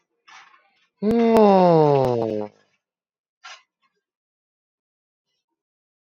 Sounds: Sigh